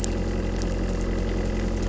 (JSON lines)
{"label": "anthrophony, boat engine", "recorder": "SoundTrap 300"}